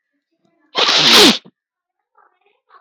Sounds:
Sneeze